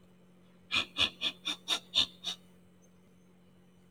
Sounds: Sniff